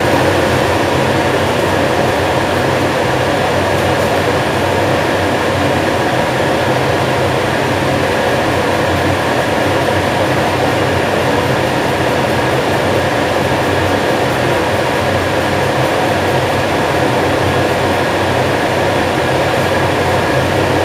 is there a brushing noise among the steady sound?
yes